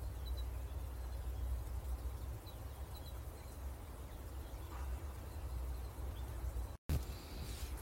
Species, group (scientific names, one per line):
Ornebius aperta
Orthoptera